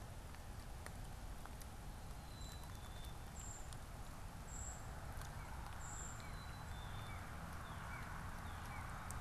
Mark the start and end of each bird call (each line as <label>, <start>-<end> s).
Black-capped Chickadee (Poecile atricapillus), 2.1-3.4 s
Brown Creeper (Certhia americana), 3.3-6.3 s
Northern Cardinal (Cardinalis cardinalis), 5.2-9.1 s
Black-capped Chickadee (Poecile atricapillus), 6.1-7.2 s